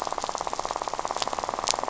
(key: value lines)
label: biophony, rattle
recorder: SoundTrap 500